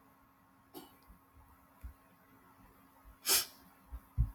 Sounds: Sniff